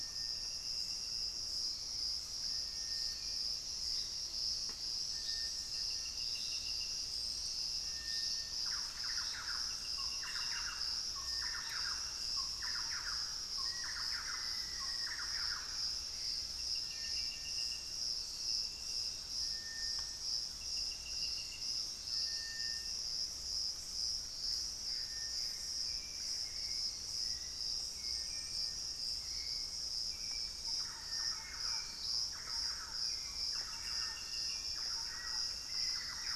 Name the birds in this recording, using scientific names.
Crypturellus soui, Campylorhynchus turdinus, Formicarius analis, Turdus hauxwelli, Cercomacra cinerascens, Legatus leucophaius